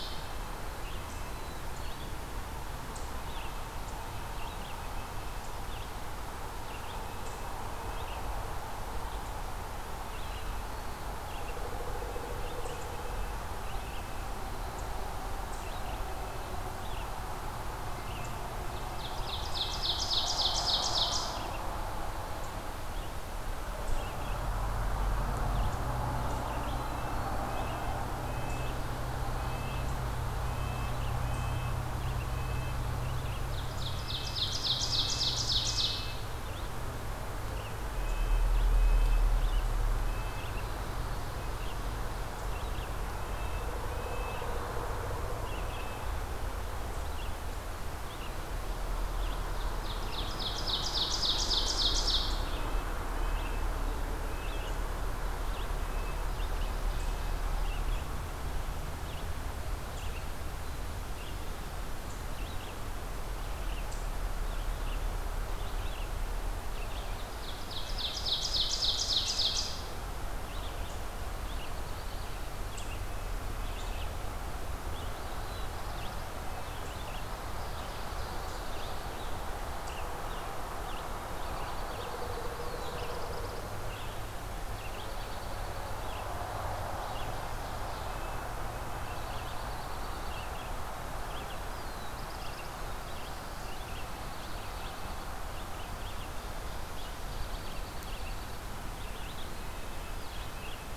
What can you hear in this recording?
Red-breasted Nuthatch, Red-eyed Vireo, Black-throated Blue Warbler, Ovenbird, Dark-eyed Junco